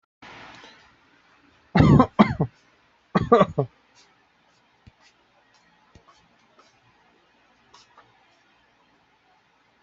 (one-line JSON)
{"expert_labels": [{"quality": "good", "cough_type": "unknown", "dyspnea": false, "wheezing": false, "stridor": false, "choking": false, "congestion": false, "nothing": true, "diagnosis": "upper respiratory tract infection", "severity": "mild"}], "age": 30, "gender": "male", "respiratory_condition": true, "fever_muscle_pain": true, "status": "COVID-19"}